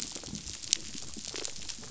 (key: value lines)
label: biophony, rattle response
recorder: SoundTrap 500